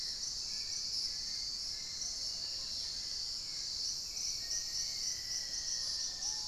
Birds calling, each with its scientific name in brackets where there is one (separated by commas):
unidentified bird, Fasciated Antshrike (Cymbilaimus lineatus), Wing-barred Piprites (Piprites chloris), Plumbeous Pigeon (Patagioenas plumbea), Cinereous Mourner (Laniocera hypopyrra), Hauxwell's Thrush (Turdus hauxwelli), Dusky-throated Antshrike (Thamnomanes ardesiacus)